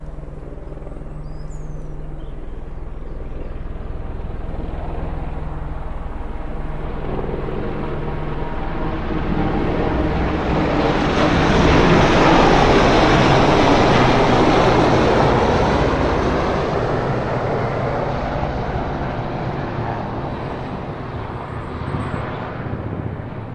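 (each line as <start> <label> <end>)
0.0 A helicopter rumbles softly and mechanically in the distance. 6.7
0.8 Birds chirp quietly in the distance. 4.5
6.7 A helicopter flies overhead with a loud, whirling mechanical sound. 17.4
17.4 A helicopter steadily fades into the distance. 23.5
20.2 Birds chirp quietly in the distance. 22.6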